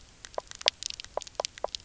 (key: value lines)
label: biophony, knock croak
recorder: SoundTrap 300